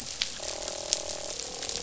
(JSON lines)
{"label": "biophony, croak", "recorder": "SoundTrap 500"}